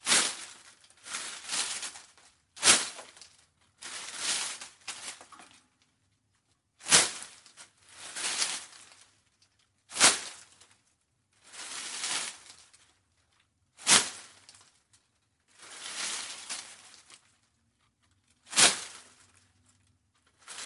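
0.0s A person repeatedly cutting grass with a scythe. 19.2s

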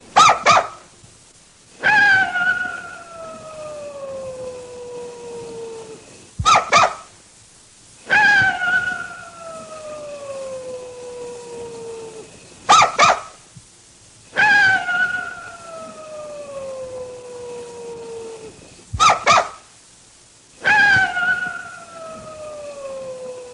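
0.0s A dog barks repeatedly in a high-pitched tone. 0.8s
1.7s A dog howls in a high-pitched tone. 6.0s
6.4s A dog barks repeatedly in a high-pitched tone. 7.0s
8.0s A dog howls in a high-pitched tone. 12.3s
12.6s A dog barks repeatedly in a high-pitched tone. 13.3s
14.3s A dog howls in a high-pitched tone. 18.8s
18.9s A dog barks repeatedly in a high-pitched tone. 19.7s
20.6s A dog howls in a high-pitched tone. 23.5s

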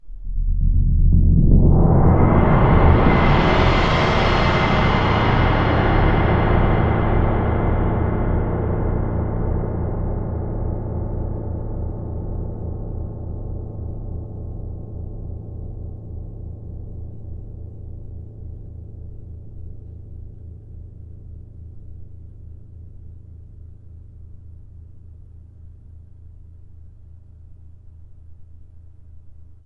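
0.0s A deep thunderous sound is heard. 29.7s

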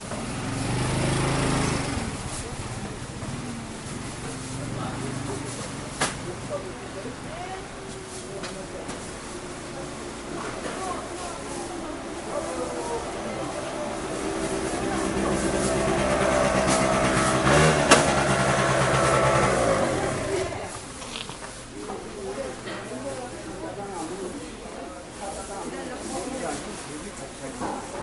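0.0s A motorcycle is whirring. 3.5s
3.5s People talking indistinctly. 28.0s
9.5s A motorcycle engine whirs as it approaches. 21.9s

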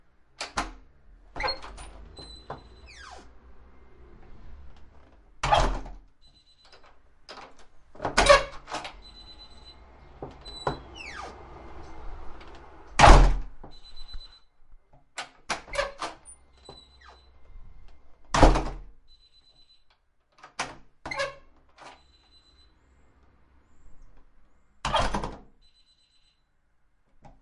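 0.2s A door opens. 3.4s
4.3s A door closes. 6.9s
7.2s A door opens. 9.5s
10.2s A door closes. 14.4s
15.0s A door opens. 16.3s
17.8s A door closes. 19.3s
20.5s Door opening. 22.2s
24.6s A door closes. 25.8s

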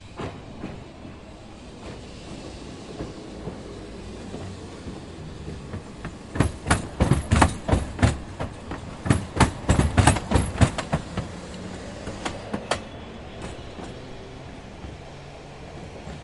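0.0s The metallic sound of train wheels repeatedly hitting the rails. 14.2s

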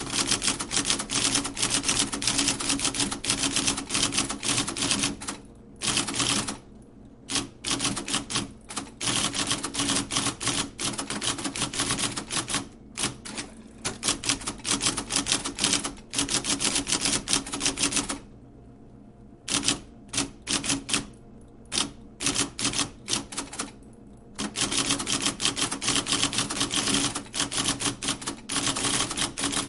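0.0s A loud, rhythmic sound of an old typewriter. 6.6s
0.0s A faint static noise is heard in the background. 29.7s
7.2s A loud, rhythmic sound of an old typewriter. 18.2s
19.4s A loud, rhythmic sound of an old typewriter. 23.7s
24.3s A loud, rhythmic sound of an old typewriter. 29.7s

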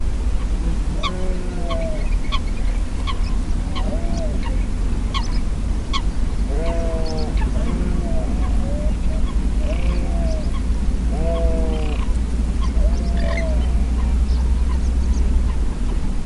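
0.0s Birds making periodic squeaking sounds in the distance. 16.3s
0.0s Constant white noise of wind. 16.3s
0.0s Crickets buzz periodically in the field. 16.3s
1.4s A sheep baas in the distance. 2.5s
6.3s A sheep baas in the distance. 7.8s
9.3s A sheep is baaing in the distance. 12.4s
9.4s A cricket buzzes briefly in the field. 10.6s
13.1s A frog croaks with a high-pitched sound in the field. 13.9s

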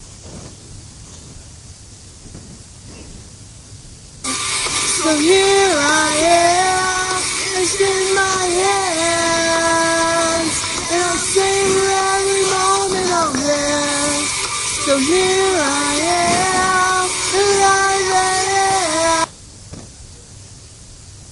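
4.2s Singing voice blending into the background with unclear articulation. 19.5s

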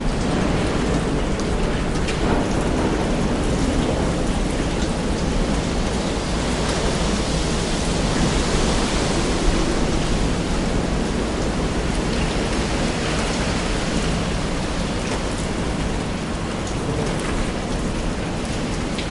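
0.0s Moderate rain falling steadily near a street. 19.1s
2.1s A dull rumbling repeats in the distance. 4.4s
7.1s A vehicle passes by steadily. 11.5s
13.6s A vehicle passes by steadily. 16.1s

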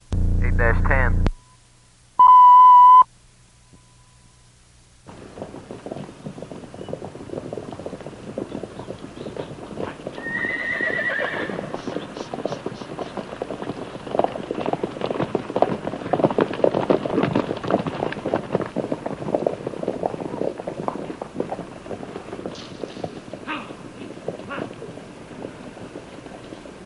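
0.0s A machine hums deeply and mechanically. 1.4s
0.4s A man is speaking. 1.2s
2.1s A machine produces a high-pitched whistle. 3.2s
4.9s Multiple horses galloping rhythmically. 26.9s
5.2s Birds chirping in the distance. 26.9s
10.1s A horse neighs. 11.7s
12.4s An object swiping. 13.8s
23.4s A man grunts aggressively. 25.0s

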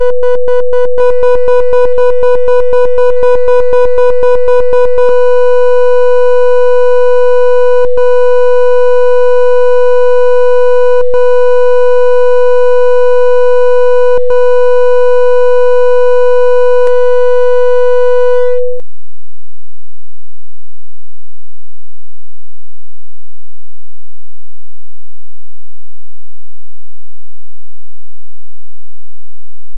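0.0s Beeping sound with high frequency and increasing volume. 5.0s
5.1s A constant beeping sound with three evenly spaced short pauses. 18.8s

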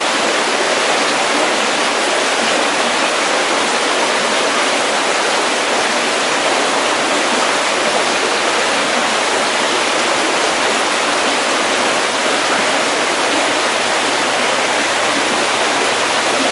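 0.0s Heavy rain falling. 16.5s

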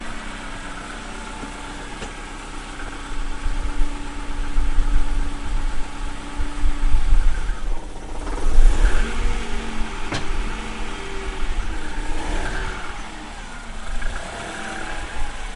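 0.0s An engine is humming. 11.2s
11.2s An engine is revving. 15.6s

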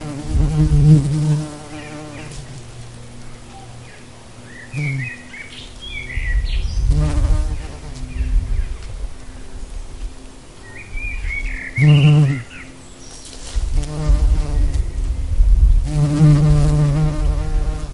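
0.0s A bee is flying away and its sound fades into the background. 3.2s
1.7s A bird tweets with an echo overhead. 2.8s
3.4s A bird makes a short sound in the distance. 3.9s
3.9s A bird sings in the distance with an echo. 6.8s
4.7s A bee buzzes briefly nearby. 5.2s
6.8s A bee buzzes as it flies close and then fades away. 8.2s
8.2s A bird sings distantly with an echo. 8.7s
8.8s An airplane flies faintly in the distance. 10.2s
10.2s A bird sings faintly in the distance with a slight echo. 11.8s
11.8s A bee is buzzing loudly nearby. 12.4s
12.4s A bird is singing with an echo. 15.4s
13.6s A bee is buzzing loudly while flying nearby. 15.3s
15.4s An airplane flying overhead in the distance. 15.9s
15.9s A bee buzzes while flying very close to the microphone. 17.9s

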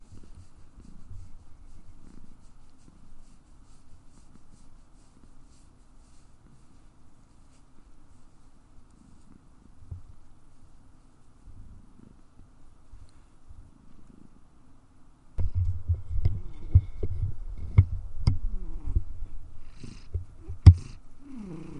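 0.0s A cat purrs faintly in the distance. 15.4s
0.0s The sound of an animal being petted at a medium distance. 15.4s
15.3s A cat is purring faintly. 21.8s
15.3s An unidentifiable object is being moved. 21.8s

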